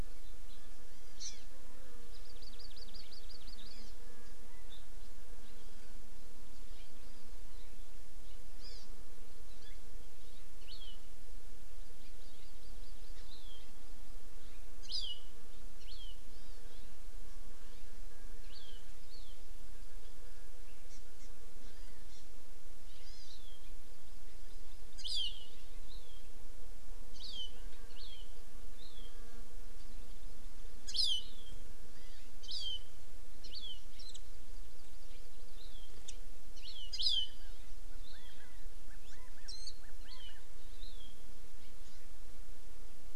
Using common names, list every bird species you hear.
Hawaii Amakihi, Warbling White-eye, California Quail